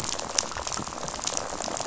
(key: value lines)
label: biophony, rattle
recorder: SoundTrap 500